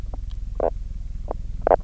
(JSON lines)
{"label": "biophony, knock croak", "recorder": "SoundTrap 300"}